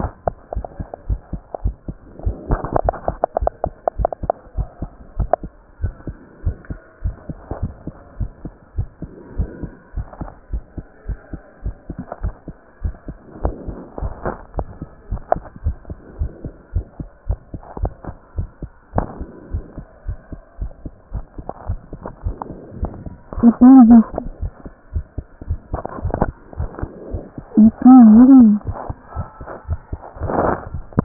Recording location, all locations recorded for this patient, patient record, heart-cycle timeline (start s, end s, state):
tricuspid valve (TV)
aortic valve (AV)+pulmonary valve (PV)+tricuspid valve (TV)+mitral valve (MV)
#Age: Child
#Sex: Male
#Height: 119.0 cm
#Weight: 23.8 kg
#Pregnancy status: False
#Murmur: Absent
#Murmur locations: nan
#Most audible location: nan
#Systolic murmur timing: nan
#Systolic murmur shape: nan
#Systolic murmur grading: nan
#Systolic murmur pitch: nan
#Systolic murmur quality: nan
#Diastolic murmur timing: nan
#Diastolic murmur shape: nan
#Diastolic murmur grading: nan
#Diastolic murmur pitch: nan
#Diastolic murmur quality: nan
#Outcome: Normal
#Campaign: 2015 screening campaign
0.00	4.89	unannotated
4.89	5.12	diastole
5.12	5.30	S1
5.30	5.42	systole
5.42	5.54	S2
5.54	5.76	diastole
5.76	5.94	S1
5.94	6.05	systole
6.05	6.20	S2
6.20	6.44	diastole
6.44	6.58	S1
6.58	6.68	systole
6.68	6.78	S2
6.78	6.98	diastole
6.98	7.16	S1
7.16	7.26	systole
7.26	7.38	S2
7.38	7.60	diastole
7.60	7.72	S1
7.72	7.84	systole
7.84	7.96	S2
7.96	8.18	diastole
8.18	8.32	S1
8.32	8.41	systole
8.41	8.52	S2
8.52	8.74	diastole
8.74	8.88	S1
8.88	9.00	systole
9.00	9.12	S2
9.12	9.32	diastole
9.32	9.50	S1
9.50	9.60	systole
9.60	9.70	S2
9.70	9.93	diastole
9.93	10.08	S1
10.08	10.18	systole
10.18	10.30	S2
10.30	10.50	diastole
10.50	10.64	S1
10.64	10.74	systole
10.74	10.86	S2
10.86	11.05	diastole
11.05	11.20	S1
11.20	11.30	systole
11.30	11.40	S2
11.40	11.62	diastole
11.62	11.76	S1
11.76	11.86	systole
11.86	12.00	S2
12.00	12.20	diastole
12.20	12.34	S1
12.34	12.46	systole
12.46	12.56	S2
12.56	12.78	diastole
12.78	12.96	S1
12.96	13.06	systole
13.06	13.18	S2
13.18	13.38	diastole
13.38	13.56	S1
13.56	13.65	systole
13.65	13.76	S2
13.76	13.96	diastole
13.96	14.10	S1
14.10	14.22	systole
14.22	14.34	S2
14.34	14.54	diastole
14.54	14.68	S1
14.68	14.78	systole
14.78	14.90	S2
14.90	15.08	diastole
15.08	15.22	S1
15.22	15.32	systole
15.32	15.44	S2
15.44	15.62	diastole
15.62	15.76	S1
15.76	15.86	systole
15.86	15.98	S2
15.98	16.16	diastole
16.16	16.32	S1
16.32	16.42	systole
16.42	16.54	S2
16.54	16.70	diastole
16.70	16.86	S1
16.86	16.97	systole
16.97	17.08	S2
17.08	17.25	diastole
17.25	17.40	S1
17.40	17.48	systole
17.48	17.58	S2
17.58	17.76	diastole
17.76	17.94	S1
17.94	18.05	systole
18.05	18.16	S2
18.16	18.34	diastole
18.34	18.50	S1
18.50	18.60	systole
18.60	18.70	S2
18.70	18.92	diastole
18.92	19.06	S1
19.06	19.18	systole
19.18	19.28	S2
19.28	19.50	diastole
19.50	19.66	S1
19.66	19.74	systole
19.74	19.84	S2
19.84	20.04	diastole
20.04	20.20	S1
20.20	20.29	systole
20.29	20.40	S2
20.40	20.58	diastole
20.58	20.70	S1
20.70	20.80	systole
20.80	20.90	S2
20.90	21.10	diastole
21.10	21.26	S1
21.26	21.35	systole
21.35	21.46	S2
21.46	21.66	diastole
21.66	21.80	S1
21.80	21.90	systole
21.90	22.02	S2
22.02	22.23	diastole
22.23	22.38	S1
22.38	22.46	systole
22.46	22.56	S2
22.56	22.79	diastole
22.79	22.82	S1
22.82	31.04	unannotated